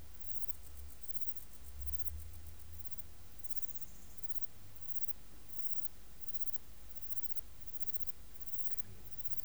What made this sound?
Platycleis albopunctata, an orthopteran